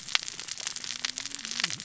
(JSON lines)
{"label": "biophony, cascading saw", "recorder": "SoundTrap 600 or HydroMoth"}